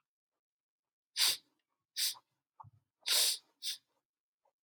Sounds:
Sniff